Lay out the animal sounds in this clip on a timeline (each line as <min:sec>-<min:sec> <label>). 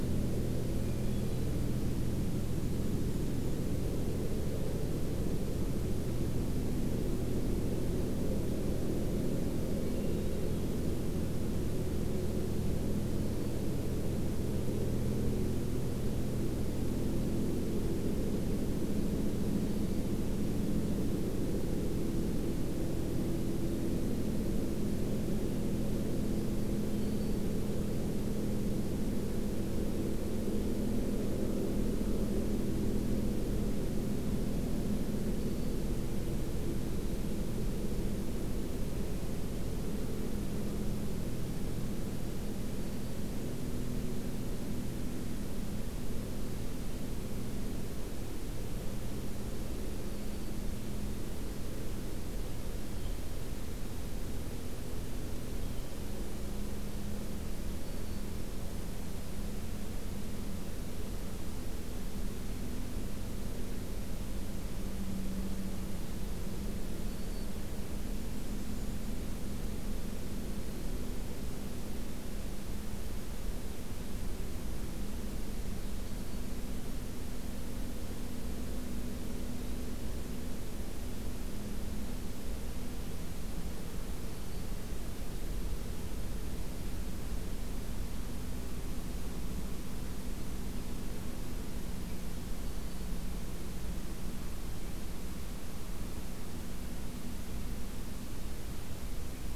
0:00.6-0:01.8 Hermit Thrush (Catharus guttatus)
0:09.6-0:10.9 Hermit Thrush (Catharus guttatus)
0:12.7-0:13.6 Black-throated Green Warbler (Setophaga virens)
0:19.3-0:20.2 Black-throated Green Warbler (Setophaga virens)
0:26.8-0:27.5 Black-throated Green Warbler (Setophaga virens)
0:35.2-0:35.9 Black-throated Green Warbler (Setophaga virens)
0:50.0-0:50.6 Black-throated Green Warbler (Setophaga virens)
0:52.7-0:53.2 Blue Jay (Cyanocitta cristata)
0:55.4-0:55.9 Blue Jay (Cyanocitta cristata)
0:57.7-0:58.3 Black-throated Green Warbler (Setophaga virens)
1:07.0-1:07.5 Black-throated Green Warbler (Setophaga virens)
1:08.0-1:09.2 Black-and-white Warbler (Mniotilta varia)
1:15.9-1:16.5 Black-throated Green Warbler (Setophaga virens)
1:24.1-1:24.8 Black-throated Green Warbler (Setophaga virens)
1:32.5-1:33.2 Black-throated Green Warbler (Setophaga virens)